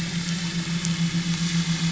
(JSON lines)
{"label": "anthrophony, boat engine", "recorder": "SoundTrap 500"}